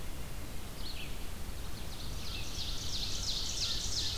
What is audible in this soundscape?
Red-eyed Vireo, Ovenbird, American Crow